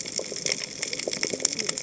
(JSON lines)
{"label": "biophony, cascading saw", "recorder": "HydroMoth"}